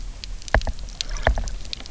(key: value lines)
label: biophony, knock
recorder: SoundTrap 300